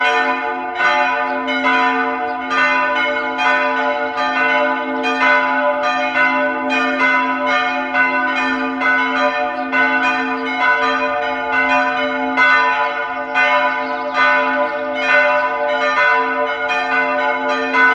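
0.0s Church bells ringing continuously with an echo. 17.9s

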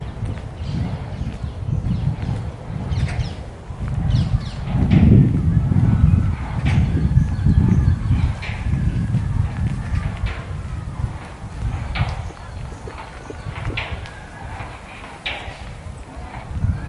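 0.1s A bird is tweeting. 4.9s
0.1s The wind is blowing and moving an undefined plate. 16.9s
4.6s Repeated metallic knocking sounds in the distance. 16.9s
4.9s Many people are mumbling in the background. 16.9s
7.0s A bird is tweeting. 9.3s
12.4s A bird is tweeting. 14.8s

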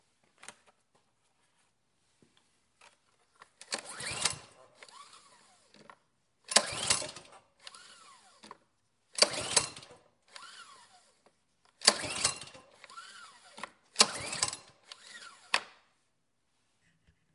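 3.5s The mower recoil cord is being pulled outdoors. 16.1s

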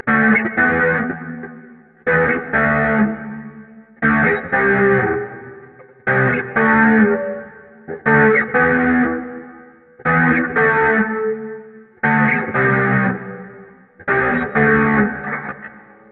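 0.0s An electric guitar plays two clear alternating tones in a repeating regular pattern. 16.1s

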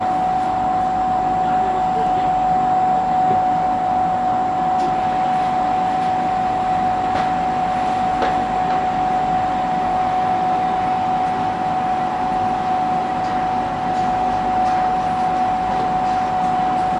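0.0s The washing machine drum rotates repeatedly. 16.9s

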